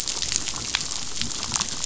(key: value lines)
label: biophony, damselfish
recorder: SoundTrap 500